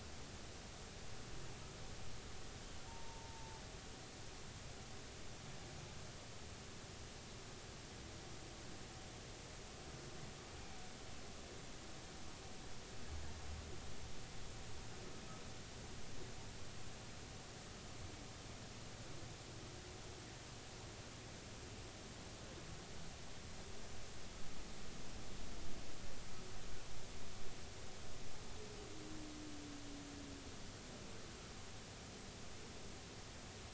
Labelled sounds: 2.9	3.6	humpback whale, 0.83 to 0.96 kHz

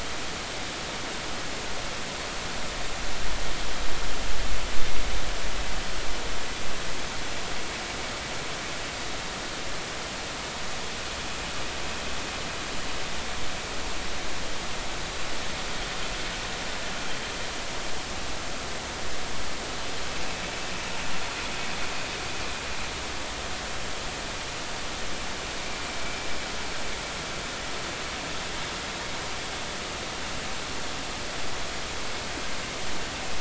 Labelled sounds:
26.0	26.3	vessel noise, 2.2 to 2.4 kHz

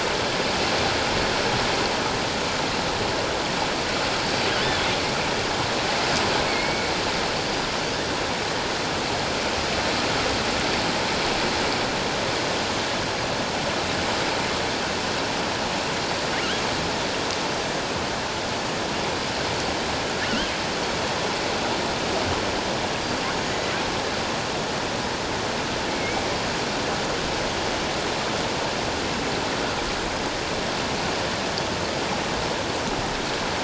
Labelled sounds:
4.2	4.9	killer whale, offshore, 3.3 to 4.7 kHz
6.5	6.9	killer whale, offshore, 2.1 to 4.5 kHz
23.4	23.7	killer whale, offshore, 6.5 to 6.9 kHz
25.9	26.2	killer whale, offshore, 2.1 to 2.3 kHz

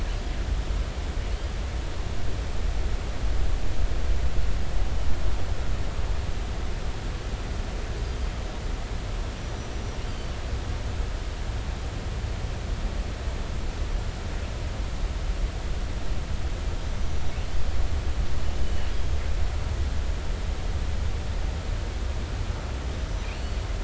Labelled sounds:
9.4	10.3	killer whale, northern resident, G clan, GI subclan, call N23i, 3.0 to 5.9 kHz
18.6	18.9	killer whale, northern resident, G clan, GI subclan, call N23i, 2.9 to 3.0 kHz
23.3	23.6	killer whale, northern resident, G clan, GI subclan, call N23i, 4.3 to 4.5 kHz

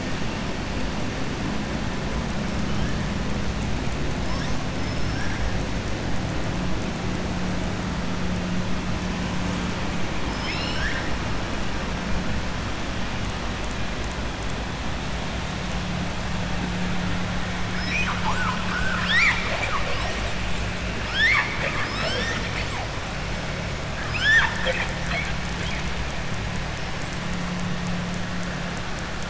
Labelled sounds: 4.7	5.3	killer whale, southern resident, 5.1 to 5.8 kHz
10.2	11.1	killer whale, southern resident, 1.4 to 7.4 kHz
21.0	22.4	killer whale, southern resident, 0.48 to 7.7 kHz
24.0	24.9	killer whale, southern resident, 0.57 to 7.7 kHz

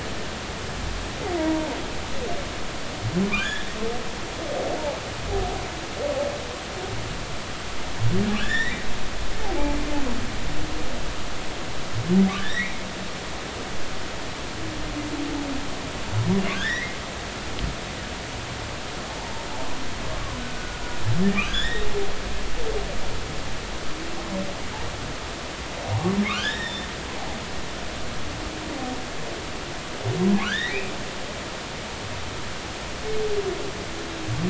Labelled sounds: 1.4	1.7	humpback whale, 0.83 to 0.99 kHz
3.3	3.7	humpback whale, 1.1 to 3.6 kHz
8.4	9.8	humpback whale, 0.80 to 5.8 kHz
12.3	12.8	humpback whale, 1.4 to 3.9 kHz
16.6	16.8	humpback whale, 3.1 to 3.7 kHz
17.5	18.0	humpback whale, 1.4 to 2.2 kHz
20.4	21.9	humpback whale, 1.4 to 3.8 kHz
25.8	26.9	humpback whale, 0.80 to 5.7 kHz
30.4	30.8	humpback whale, 1.3 to 3.9 kHz

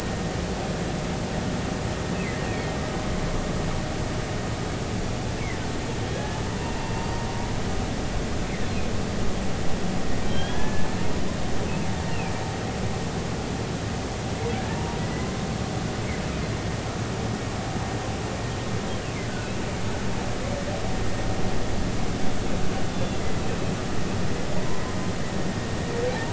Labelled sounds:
2.4	2.7	humpback whale, 2.1 to 2.8 kHz
6.1	6.4	humpback whale, 1.6 to 1.8 kHz
6.8	7.0	humpback whale, 2.7 to 2.8 kHz
10.2	10.9	humpback whale, 1.5 to 3.5 kHz
22.9	23.3	humpback whale, 3.3 to 3.6 kHz

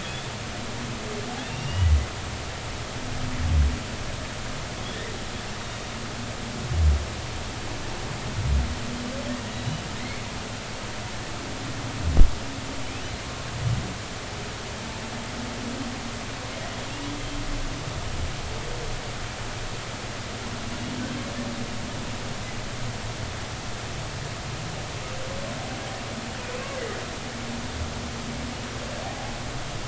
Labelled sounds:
0.0	0.3	humpback whale, 3.3 to 3.8 kHz
1.4	1.9	humpback whale, 2.7 to 3.0 kHz
9.5	9.8	humpback whale, 3.8 to 4.0 kHz
29.0	29.3	humpback whale, 0.80 to 0.90 kHz

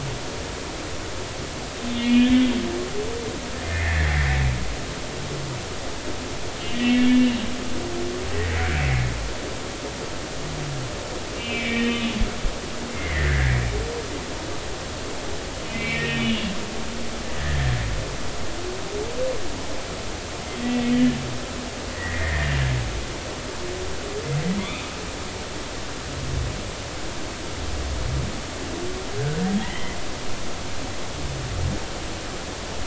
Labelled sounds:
1.9	2.4	humpback whale, 1.7 to 3.4 kHz
3.6	4.4	humpback whale, 1.7 to 2.3 kHz
6.7	7.4	humpback whale, 1.9 to 3.0 kHz
11.4	12.1	humpback whale, 1.8 to 3.1 kHz
12.9	13.6	humpback whale, 1.5 to 2.3 kHz
15.7	16.5	humpback whale, 1.8 to 3.5 kHz
17.3	17.6	humpback whale, 1.6 to 2.0 kHz
20.6	21.2	humpback whale, 1.7 to 2.0 kHz
22.0	22.6	humpback whale, 1.7 to 2.1 kHz
24.6	24.9	humpback whale, 2.0 to 3.8 kHz
29.6	30.0	humpback whale, 1.9 to 3.2 kHz

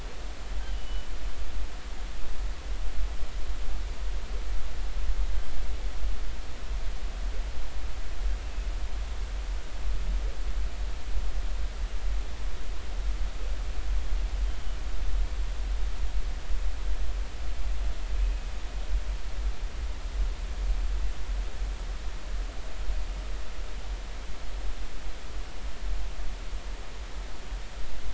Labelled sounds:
0.7	1.1	humpback whale, 2.8 to 3.0 kHz

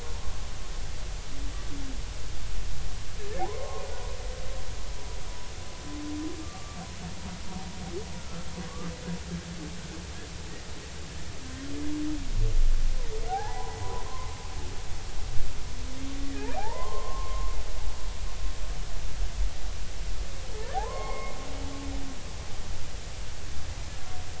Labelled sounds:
3.4	3.8	humpback whale, 0.80 to 1.1 kHz
6.4	6.8	humpback whale, 1.1 to 1.2 kHz
8.2	8.5	humpback whale, 1.3 to 1.4 kHz
11.4	11.7	humpback whale, 1.5 to 1.7 kHz
13.3	14.4	humpback whale, 0.80 to 1.1 kHz
16.2	17.5	humpback whale, 0.80 to 2.0 kHz
20.7	21.3	humpback whale, 0.80 to 2.2 kHz

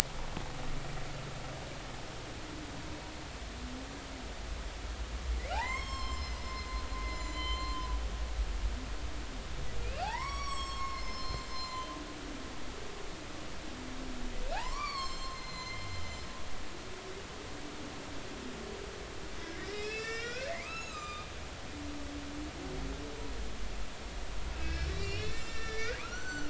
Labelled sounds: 5.5	6.7	humpback whale, 0.80 to 7.6 kHz
7.0	7.8	humpback whale, 2.0 to 7.4 kHz
9.8	11.9	humpback whale, 0.80 to 7.9 kHz
14.5	16.0	humpback whale, 0.80 to 7.7 kHz
19.6	21.3	humpback whale, 1.2 to 7.6 kHz
24.5	26.4	humpback whale, 1.1 to 7.4 kHz

